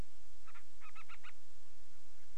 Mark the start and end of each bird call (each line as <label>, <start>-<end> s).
Band-rumped Storm-Petrel (Hydrobates castro), 0.4-1.4 s